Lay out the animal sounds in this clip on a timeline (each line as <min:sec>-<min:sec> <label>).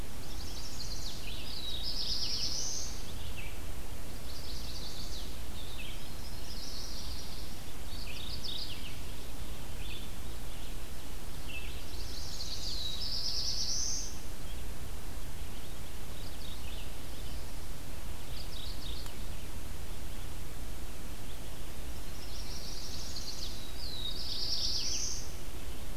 0:00.0-0:17.5 Red-eyed Vireo (Vireo olivaceus)
0:00.0-0:01.6 Chestnut-sided Warbler (Setophaga pensylvanica)
0:01.2-0:02.5 Mourning Warbler (Geothlypis philadelphia)
0:01.3-0:03.2 Black-throated Blue Warbler (Setophaga caerulescens)
0:04.2-0:05.4 Chestnut-sided Warbler (Setophaga pensylvanica)
0:05.9-0:07.6 Yellow-rumped Warbler (Setophaga coronata)
0:07.5-0:09.3 Mourning Warbler (Geothlypis philadelphia)
0:11.8-0:13.0 Chestnut-sided Warbler (Setophaga pensylvanica)
0:12.5-0:14.2 Black-throated Blue Warbler (Setophaga caerulescens)
0:15.7-0:17.0 Mourning Warbler (Geothlypis philadelphia)
0:18.1-0:19.2 Mourning Warbler (Geothlypis philadelphia)
0:22.1-0:23.7 Chestnut-sided Warbler (Setophaga pensylvanica)
0:23.5-0:25.6 Black-throated Blue Warbler (Setophaga caerulescens)
0:24.0-0:25.1 Mourning Warbler (Geothlypis philadelphia)